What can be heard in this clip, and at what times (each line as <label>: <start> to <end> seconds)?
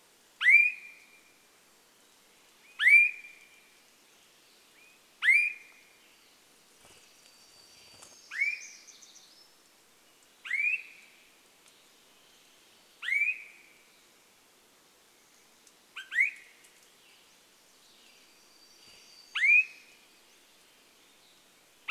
Swainson's Thrush call: 0 to 6 seconds
Western Tanager song: 6 to 8 seconds
bird wingbeats: 6 to 8 seconds
warbler song: 6 to 10 seconds
Swainson's Thrush call: 8 to 22 seconds
Pacific-slope Flycatcher call: 16 to 18 seconds
Western Tanager song: 16 to 20 seconds
warbler song: 18 to 20 seconds